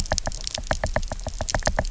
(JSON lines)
{"label": "biophony, knock", "recorder": "SoundTrap 300"}